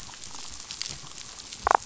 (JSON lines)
{"label": "biophony, damselfish", "recorder": "SoundTrap 500"}